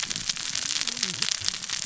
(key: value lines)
label: biophony, cascading saw
recorder: SoundTrap 600 or HydroMoth